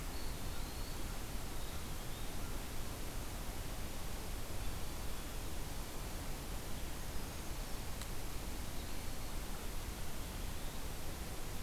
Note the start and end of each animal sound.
0.0s-2.5s: Eastern Wood-Pewee (Contopus virens)

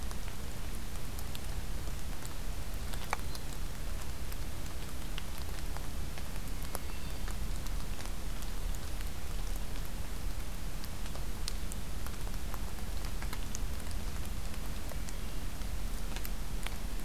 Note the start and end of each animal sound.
2.6s-3.6s: Hermit Thrush (Catharus guttatus)
6.4s-7.4s: Hermit Thrush (Catharus guttatus)

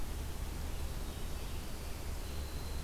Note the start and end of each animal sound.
0.6s-2.8s: Winter Wren (Troglodytes hiemalis)

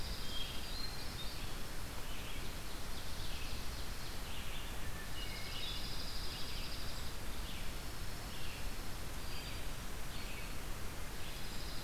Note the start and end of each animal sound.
0.0s-0.6s: Dark-eyed Junco (Junco hyemalis)
0.0s-11.8s: Red-eyed Vireo (Vireo olivaceus)
0.2s-1.6s: Hermit Thrush (Catharus guttatus)
2.2s-4.3s: Ovenbird (Seiurus aurocapilla)
4.7s-5.9s: Hermit Thrush (Catharus guttatus)
5.1s-9.2s: Dark-eyed Junco (Junco hyemalis)
9.1s-10.5s: Hermit Thrush (Catharus guttatus)
11.2s-11.8s: Dark-eyed Junco (Junco hyemalis)

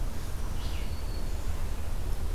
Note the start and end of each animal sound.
0.0s-1.3s: Red-eyed Vireo (Vireo olivaceus)
0.0s-1.7s: Black-throated Green Warbler (Setophaga virens)

